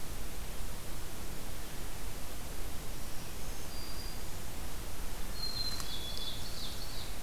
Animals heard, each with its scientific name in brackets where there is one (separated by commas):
Ovenbird (Seiurus aurocapilla), Black-throated Green Warbler (Setophaga virens), Black-capped Chickadee (Poecile atricapillus)